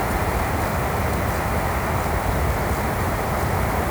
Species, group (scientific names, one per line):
Stauroderus scalaris
Orthoptera